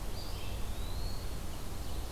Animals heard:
Red-eyed Vireo (Vireo olivaceus), Eastern Wood-Pewee (Contopus virens), Ovenbird (Seiurus aurocapilla)

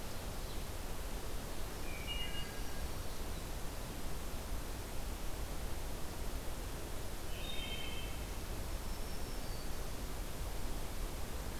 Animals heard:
Wood Thrush (Hylocichla mustelina), Black-throated Green Warbler (Setophaga virens)

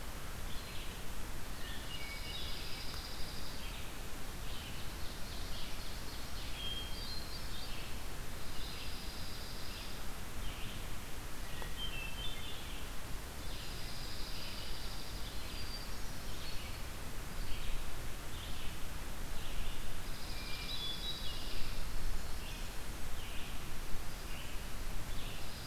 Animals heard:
Red-eyed Vireo (Vireo olivaceus), Dark-eyed Junco (Junco hyemalis), Hermit Thrush (Catharus guttatus), Blackburnian Warbler (Setophaga fusca), Ovenbird (Seiurus aurocapilla)

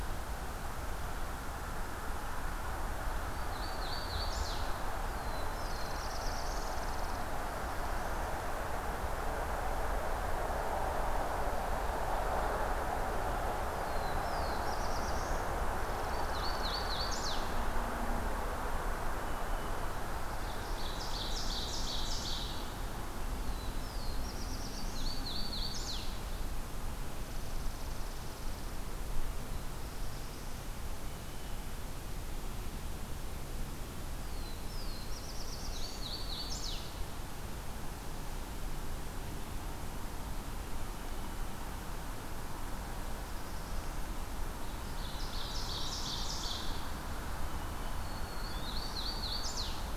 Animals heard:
Ovenbird (Seiurus aurocapilla), Chipping Sparrow (Spizella passerina), Black-throated Blue Warbler (Setophaga caerulescens), Hooded Warbler (Setophaga citrina), Black-throated Green Warbler (Setophaga virens), Blue Jay (Cyanocitta cristata)

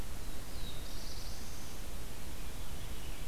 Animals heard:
Black-throated Blue Warbler (Setophaga caerulescens), Veery (Catharus fuscescens)

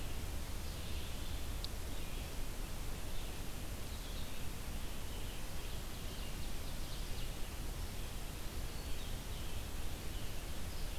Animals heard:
Red-eyed Vireo (Vireo olivaceus), Ovenbird (Seiurus aurocapilla)

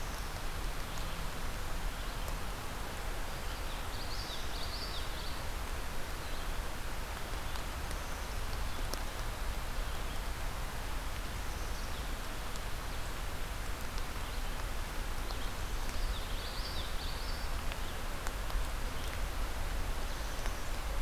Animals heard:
Common Yellowthroat (Geothlypis trichas), Black-capped Chickadee (Poecile atricapillus)

